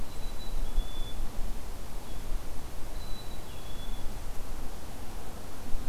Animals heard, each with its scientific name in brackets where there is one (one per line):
Black-capped Chickadee (Poecile atricapillus)
Blue-headed Vireo (Vireo solitarius)